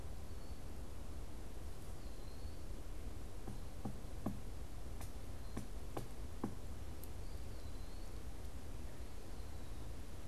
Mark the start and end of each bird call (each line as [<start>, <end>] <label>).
[0.00, 10.27] Eastern Wood-Pewee (Contopus virens)